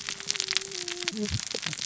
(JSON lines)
{"label": "biophony, cascading saw", "recorder": "SoundTrap 600 or HydroMoth"}